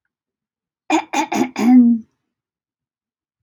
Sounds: Throat clearing